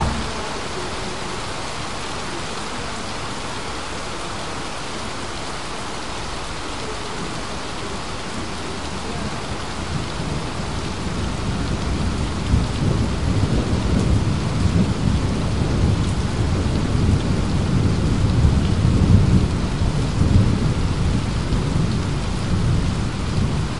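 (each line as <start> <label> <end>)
0.0 Several people are talking in the distance outdoors. 12.0
0.0 Heavy rain is falling continuously outdoors. 23.8
10.3 Low thunder rumble that intensifies and then fades. 23.8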